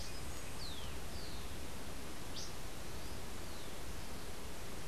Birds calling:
Rufous-collared Sparrow (Zonotrichia capensis)

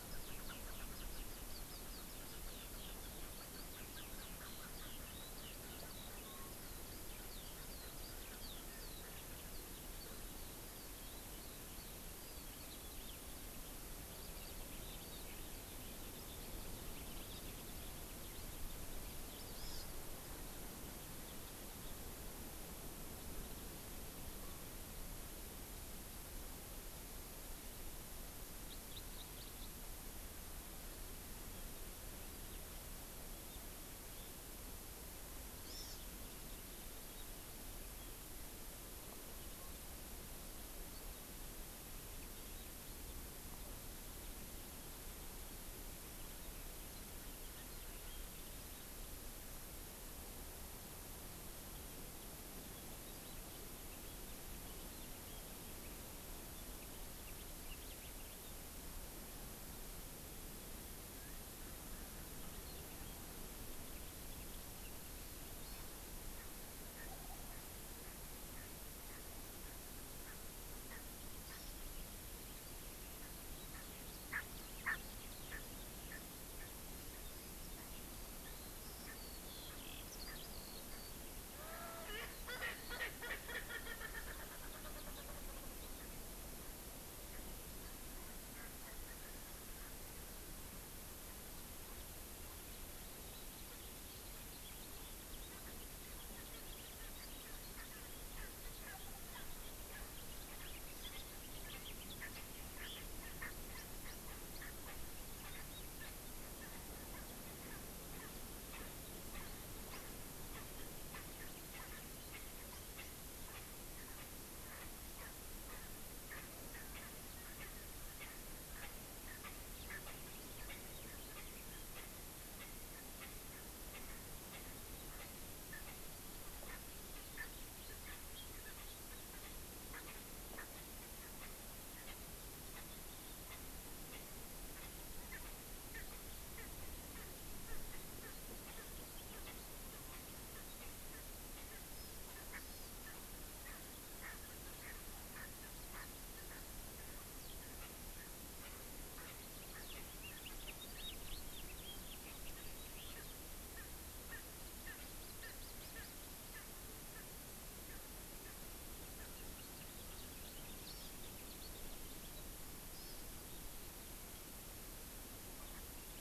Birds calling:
Eurasian Skylark (Alauda arvensis)
House Finch (Haemorhous mexicanus)
Hawaii Amakihi (Chlorodrepanis virens)
Erckel's Francolin (Pternistis erckelii)
Chukar (Alectoris chukar)

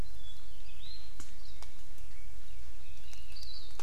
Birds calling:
Hawaii Amakihi (Chlorodrepanis virens)
Warbling White-eye (Zosterops japonicus)

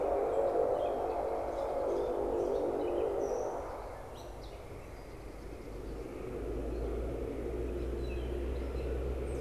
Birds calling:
Gray Catbird (Dumetella carolinensis)

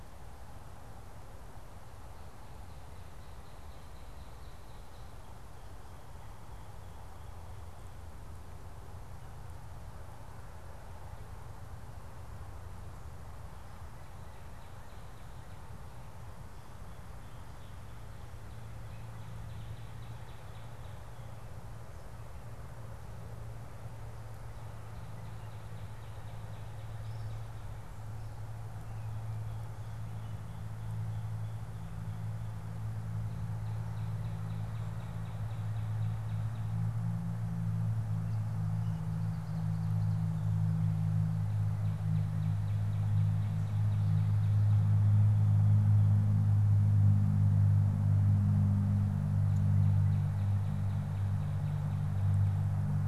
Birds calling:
Ovenbird (Seiurus aurocapilla)
Northern Cardinal (Cardinalis cardinalis)

